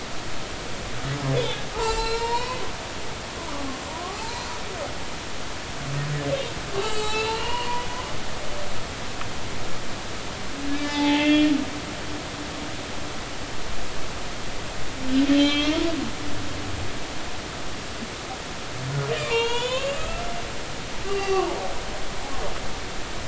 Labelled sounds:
1.7	2.6	humpback whale, 0.80 to 7.8 kHz
3.0	3.5	humpback whale, 3.6 to 4.0 kHz
6.8	7.9	humpback whale, 0.80 to 7.9 kHz
10.7	11.5	humpback whale, 0.80 to 5.0 kHz
15.3	15.8	humpback whale, 1.1 to 4.0 kHz
19.2	20.3	humpback whale, 0.86 to 7.4 kHz
21.1	21.5	humpback whale, 0.80 to 4.8 kHz
22.0	22.4	humpback whale, 1.1 to 2.9 kHz

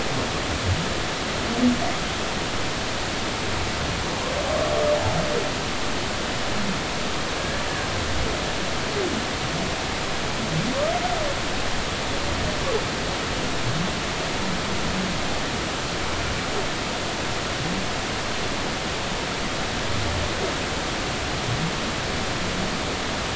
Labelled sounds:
7.4	7.6	humpback whale, 1.6 to 1.8 kHz

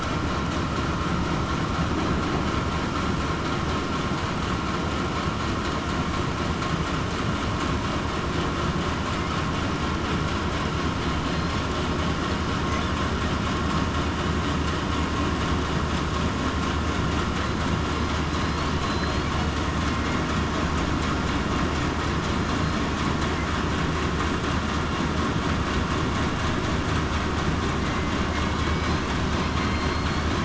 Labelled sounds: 18.8	19.2	killer whale, southern resident, 4.0 to 4.4 kHz
29.6	30.1	killer whale, southern resident, 4.1 to 4.3 kHz

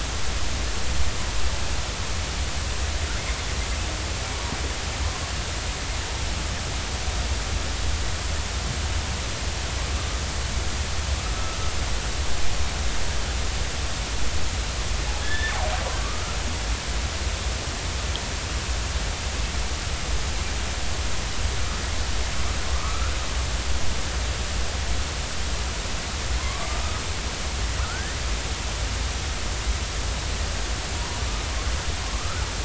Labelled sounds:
15.2	16.4	killer whale, northern resident, 1.1 to 3.7 kHz
22.7	23.1	killer whale, northern resident, 1.0 to 1.5 kHz
26.4	26.8	killer whale, northern resident, 0.99 to 1.3 kHz
27.8	28.2	killer whale, northern resident, 1.2 to 2.0 kHz
31.0	31.2	killer whale, northern resident, 0.90 to 1.1 kHz
32.2	32.5	killer whale, northern resident, 1.2 to 1.5 kHz

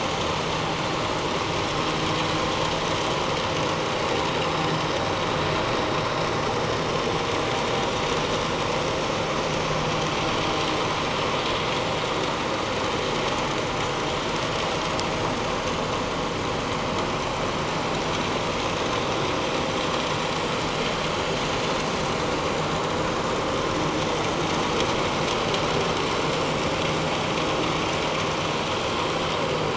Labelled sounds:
11.0	11.3	vessel noise, 5.2 to 5.4 kHz

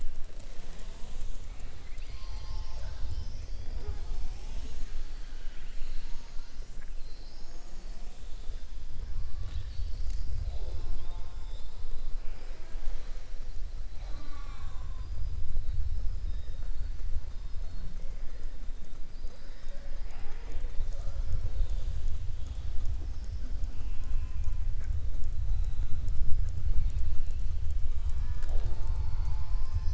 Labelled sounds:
23.7	24.6	killer whale, southern resident, 0.83 to 3.3 kHz

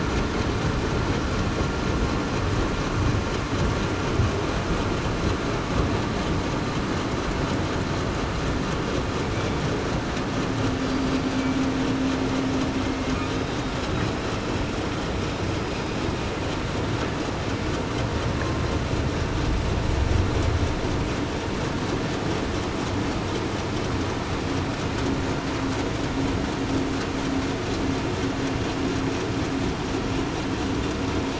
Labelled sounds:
10.8	11.2	killer whale, southern resident, 4.6 to 4.7 kHz

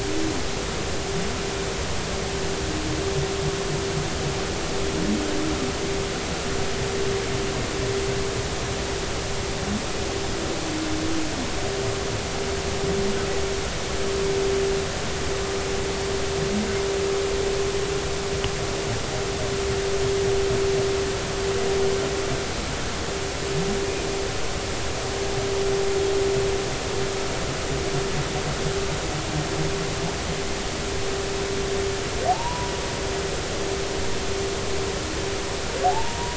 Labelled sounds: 32.3	32.7	humpback whale, 0.80 to 1.0 kHz
35.8	36.3	humpback whale, 0.80 to 1.0 kHz

